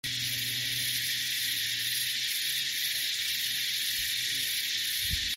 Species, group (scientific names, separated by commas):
Psaltoda harrisii, Cicadidae